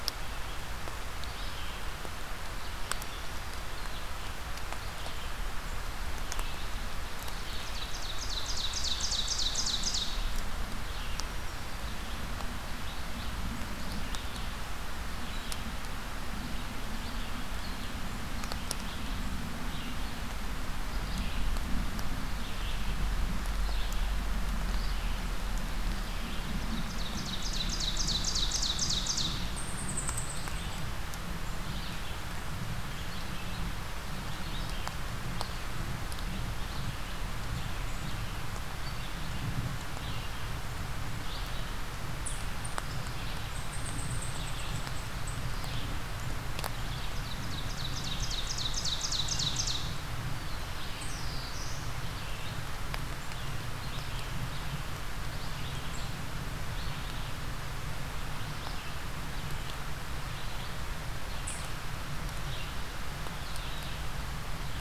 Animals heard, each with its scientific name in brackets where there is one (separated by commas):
Black-throated Blue Warbler (Setophaga caerulescens), unidentified call, Ovenbird (Seiurus aurocapilla), Red-eyed Vireo (Vireo olivaceus)